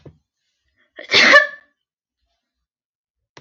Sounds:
Sneeze